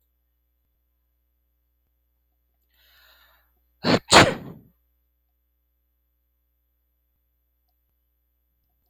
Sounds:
Sneeze